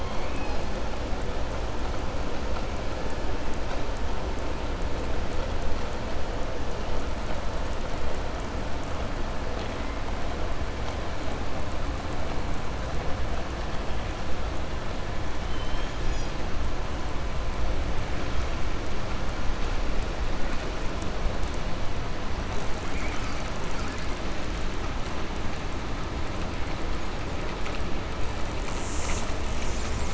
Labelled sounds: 0.0	0.6	killer whale, southern resident, 1.7 to 5.5 kHz
15.4	15.9	killer whale, southern resident, 2.1 to 3.3 kHz

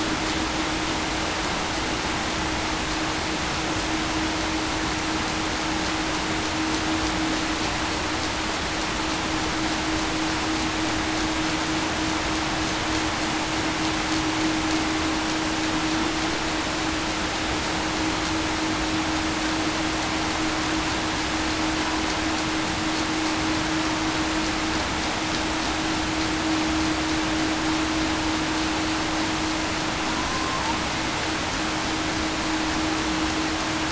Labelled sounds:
30.3	30.6	killer whale, Bigg's (transient), 1.0 to 1.1 kHz

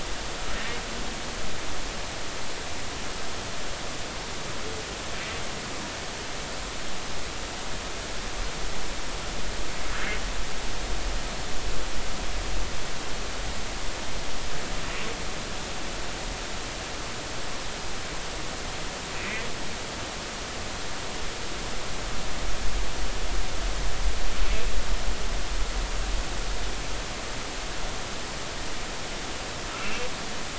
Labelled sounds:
19.1	19.5	humpback whale, 1.9 to 2.7 kHz
29.8	30.1	humpback whale, 2.6 to 2.8 kHz

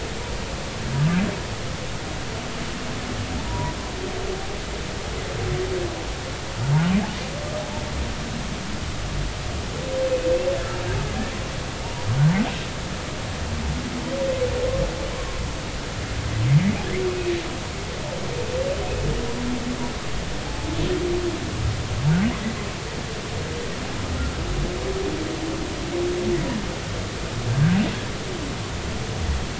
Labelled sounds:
3.4	3.8	humpback whale, 0.90 to 1.0 kHz

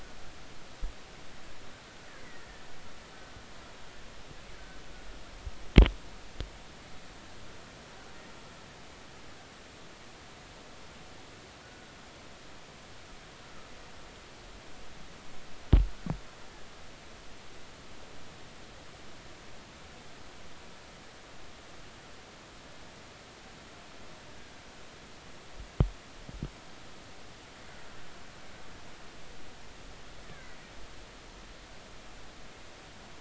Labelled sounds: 2.2	2.5	killer whale, Bigg's (transient), 1.8 to 2.1 kHz
11.6	11.9	killer whale, Bigg's (transient), 1.4 to 1.5 kHz
31.3	31.6	killer whale, Bigg's (transient), 1.9 to 2.4 kHz

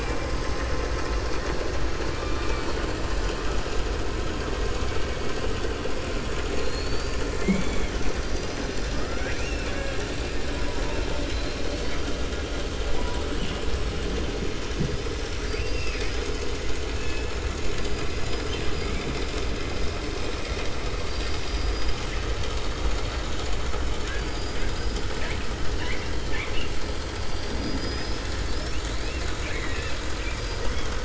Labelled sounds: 2.1	2.8	killer whale, 0.90 to 6.2 kHz
7.9	10.0	killer whale, 0.89 to 6.4 kHz
11.1	12.1	killer whale, 1.9 to 5.5 kHz
20.9	22.1	killer whale, 2.9 to 6.3 kHz
27.2	28.3	killer whale, 4.1 to 5.8 kHz

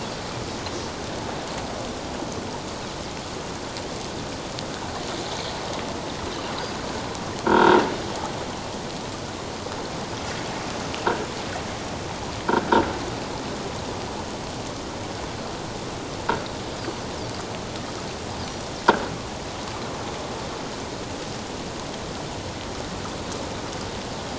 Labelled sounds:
7.4	7.8	croaking sound likely from a nearby submerged object, 0.88 to 1.7 kHz
18.4	18.7	Pacific white-sided dolphin, 5.7 to 6.0 kHz

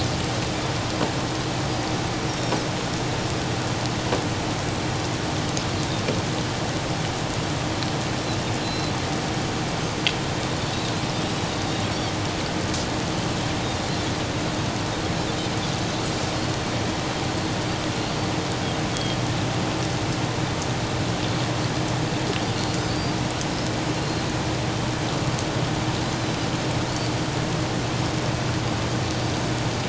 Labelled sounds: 2.3	2.6	Pacific white-sided dolphin, 5.2 to 5.7 kHz
8.6	8.9	Pacific white-sided dolphin, 4.0 to 4.1 kHz
18.9	19.2	Pacific white-sided dolphin, 3.2 to 3.4 kHz
22.9	23.1	Pacific white-sided dolphin, 4.4 to 4.8 kHz
24.0	24.2	Pacific white-sided dolphin, 4.1 to 4.3 kHz
26.1	26.4	Pacific white-sided dolphin, 3.9 to 4.2 kHz

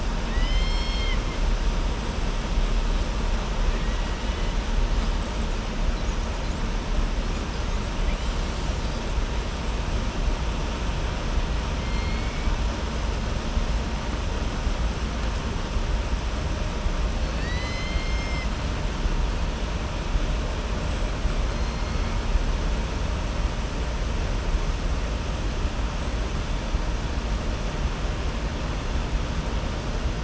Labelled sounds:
0.2	1.2	killer whale, southern resident, 1.8 to 7.5 kHz
11.8	12.5	killer whale, southern resident, 2.1 to 3.2 kHz
17.2	18.5	killer whale, southern resident, 1.8 to 7.1 kHz

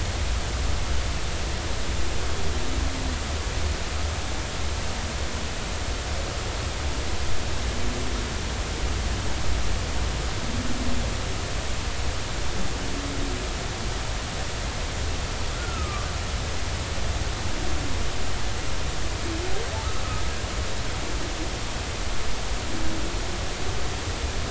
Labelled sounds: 15.5	16.1	humpback whale, 1.1 to 1.5 kHz

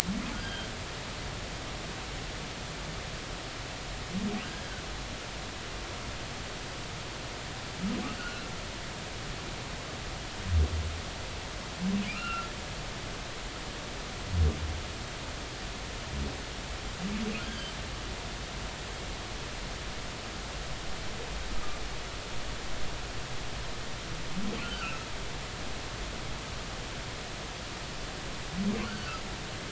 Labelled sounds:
0.4	0.7	humpback whale, 1.4 to 3.3 kHz
4.4	4.8	humpback whale, 1.4 to 1.7 kHz
8.2	8.4	humpback whale, 1.2 to 1.6 kHz
12.1	12.5	humpback whale, 1.2 to 3.0 kHz
17.4	17.7	humpback whale, 3.0 to 3.4 kHz
24.6	25.0	humpback whale, 1.3 to 1.6 kHz
28.8	29.2	humpback whale, 1.2 to 1.6 kHz

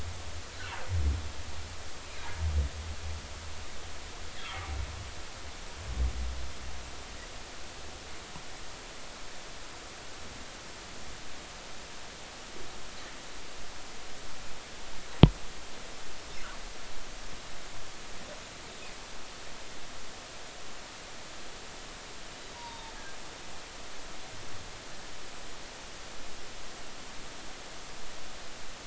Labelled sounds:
4.3	4.7	humpback whale, 1.1 to 3.5 kHz
22.5	22.9	humpback whale, 0.80 to 4.8 kHz

